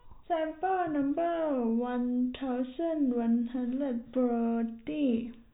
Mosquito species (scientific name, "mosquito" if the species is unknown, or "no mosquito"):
no mosquito